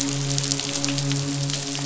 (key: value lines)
label: biophony, midshipman
recorder: SoundTrap 500